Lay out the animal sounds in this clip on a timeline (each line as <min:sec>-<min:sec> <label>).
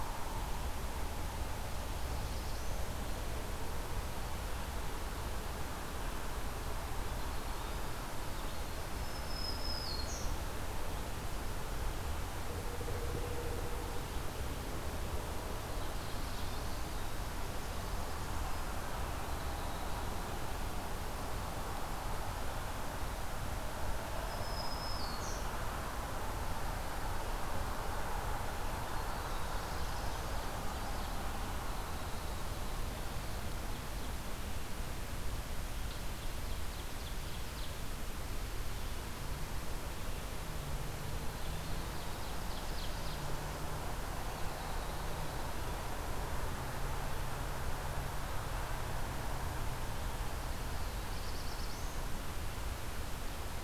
0:01.4-0:03.1 Black-throated Blue Warbler (Setophaga caerulescens)
0:08.6-0:10.3 Black-throated Green Warbler (Setophaga virens)
0:15.2-0:20.7 Winter Wren (Troglodytes hiemalis)
0:15.7-0:17.1 Black-throated Blue Warbler (Setophaga caerulescens)
0:24.0-0:25.6 Black-throated Green Warbler (Setophaga virens)
0:28.6-0:33.0 Winter Wren (Troglodytes hiemalis)
0:29.1-0:31.5 Ovenbird (Seiurus aurocapilla)
0:35.8-0:37.9 Ovenbird (Seiurus aurocapilla)
0:41.0-0:43.5 Ovenbird (Seiurus aurocapilla)
0:50.4-0:52.0 Black-throated Blue Warbler (Setophaga caerulescens)